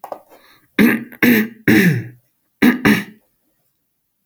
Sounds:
Throat clearing